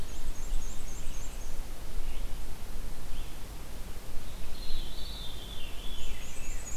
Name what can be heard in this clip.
Black-and-white Warbler, Red-eyed Vireo, Veery